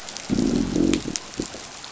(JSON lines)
{"label": "biophony, growl", "recorder": "SoundTrap 500"}